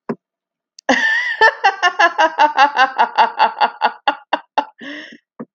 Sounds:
Laughter